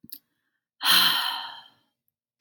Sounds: Sigh